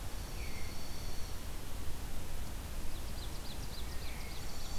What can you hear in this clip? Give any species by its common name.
Dark-eyed Junco, Veery, Ovenbird